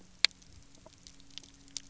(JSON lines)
{"label": "anthrophony, boat engine", "recorder": "SoundTrap 300"}